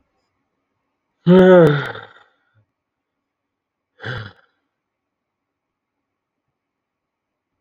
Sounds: Sigh